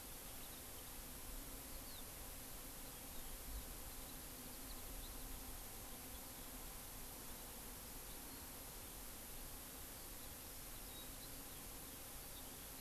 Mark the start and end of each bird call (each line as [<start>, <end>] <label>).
[2.80, 5.40] Eurasian Skylark (Alauda arvensis)
[9.90, 12.70] Eurasian Skylark (Alauda arvensis)